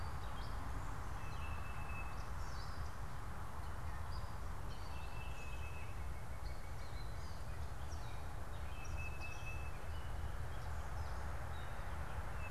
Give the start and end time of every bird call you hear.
0.0s-6.1s: Tufted Titmouse (Baeolophus bicolor)
0.0s-12.5s: unidentified bird
5.5s-7.4s: Northern Cardinal (Cardinalis cardinalis)
8.7s-12.5s: Tufted Titmouse (Baeolophus bicolor)

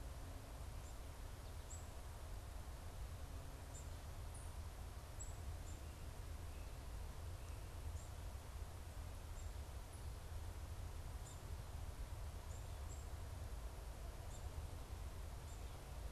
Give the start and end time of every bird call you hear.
0.0s-8.5s: Black-capped Chickadee (Poecile atricapillus)
10.8s-16.1s: Black-capped Chickadee (Poecile atricapillus)

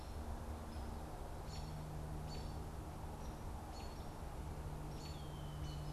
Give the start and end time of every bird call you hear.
0.0s-4.0s: American Robin (Turdus migratorius)
0.0s-5.9s: Hairy Woodpecker (Dryobates villosus)
4.9s-5.9s: American Robin (Turdus migratorius)

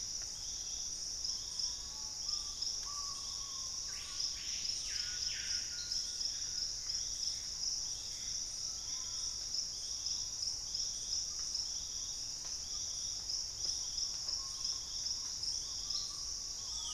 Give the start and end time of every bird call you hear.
0.0s-16.9s: Purple-throated Fruitcrow (Querula purpurata)
0.1s-6.3s: Screaming Piha (Lipaugus vociferans)
6.0s-9.2s: Gray Antbird (Cercomacra cinerascens)
8.3s-9.6s: Collared Trogon (Trogon collaris)
14.2s-16.9s: Screaming Piha (Lipaugus vociferans)

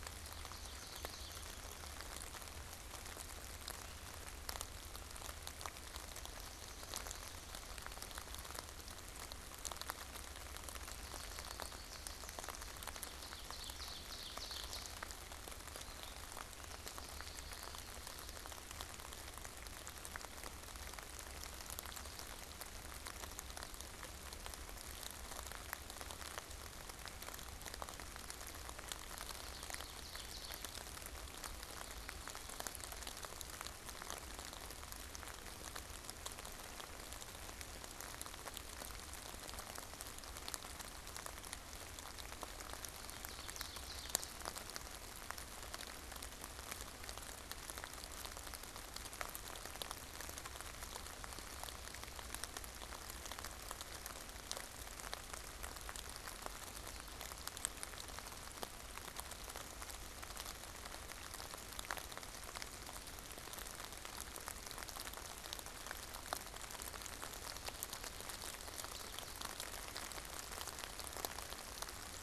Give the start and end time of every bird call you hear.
0.0s-1.9s: American Goldfinch (Spinus tristis)
10.3s-12.9s: American Goldfinch (Spinus tristis)
12.9s-15.2s: Ovenbird (Seiurus aurocapilla)
16.6s-18.8s: American Goldfinch (Spinus tristis)
28.9s-31.0s: Ovenbird (Seiurus aurocapilla)
42.4s-44.5s: Ovenbird (Seiurus aurocapilla)

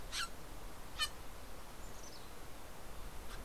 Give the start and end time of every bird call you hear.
0.0s-3.4s: Steller's Jay (Cyanocitta stelleri)
1.7s-3.3s: Mountain Chickadee (Poecile gambeli)

